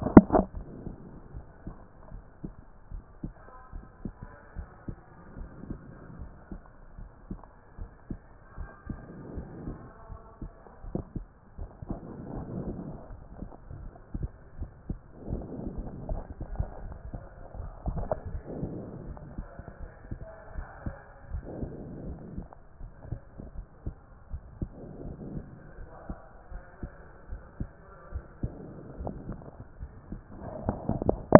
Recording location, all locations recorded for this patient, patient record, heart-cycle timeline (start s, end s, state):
pulmonary valve (PV)
aortic valve (AV)+pulmonary valve (PV)+tricuspid valve (TV)+mitral valve (MV)
#Age: nan
#Sex: Female
#Height: nan
#Weight: nan
#Pregnancy status: True
#Murmur: Absent
#Murmur locations: nan
#Most audible location: nan
#Systolic murmur timing: nan
#Systolic murmur shape: nan
#Systolic murmur grading: nan
#Systolic murmur pitch: nan
#Systolic murmur quality: nan
#Diastolic murmur timing: nan
#Diastolic murmur shape: nan
#Diastolic murmur grading: nan
#Diastolic murmur pitch: nan
#Diastolic murmur quality: nan
#Outcome: Normal
#Campaign: 2014 screening campaign
0.00	1.26	unannotated
1.26	1.34	diastole
1.34	1.44	S1
1.44	1.64	systole
1.64	1.74	S2
1.74	2.12	diastole
2.12	2.24	S1
2.24	2.42	systole
2.42	2.52	S2
2.52	2.92	diastole
2.92	3.04	S1
3.04	3.22	systole
3.22	3.32	S2
3.32	3.74	diastole
3.74	3.84	S1
3.84	4.04	systole
4.04	4.14	S2
4.14	4.56	diastole
4.56	4.68	S1
4.68	4.88	systole
4.88	4.96	S2
4.96	5.38	diastole
5.38	5.50	S1
5.50	5.68	systole
5.68	5.78	S2
5.78	6.18	diastole
6.18	6.30	S1
6.30	6.50	systole
6.50	6.60	S2
6.60	6.98	diastole
6.98	7.10	S1
7.10	7.30	systole
7.30	7.38	S2
7.38	7.78	diastole
7.78	7.90	S1
7.90	8.10	systole
8.10	8.20	S2
8.20	8.58	diastole
8.58	8.70	S1
8.70	8.88	systole
8.88	8.98	S2
8.98	9.36	diastole
9.36	9.46	S1
9.46	9.64	systole
9.64	9.76	S2
9.76	10.10	diastole
10.10	10.22	S1
10.22	10.40	systole
10.40	10.52	S2
10.52	10.83	diastole
10.83	31.39	unannotated